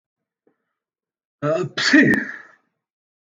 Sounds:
Sneeze